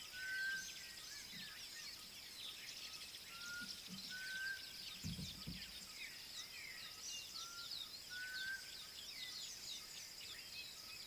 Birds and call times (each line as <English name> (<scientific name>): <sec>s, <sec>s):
Black Cuckoo (Cuculus clamosus): 4.3s